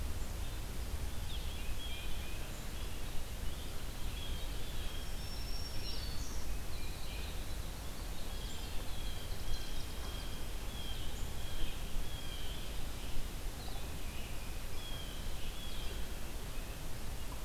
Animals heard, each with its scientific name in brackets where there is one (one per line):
Black-capped Chickadee (Poecile atricapillus)
Red-eyed Vireo (Vireo olivaceus)
Black-throated Green Warbler (Setophaga virens)
Blue Jay (Cyanocitta cristata)
Chimney Swift (Chaetura pelagica)
Tufted Titmouse (Baeolophus bicolor)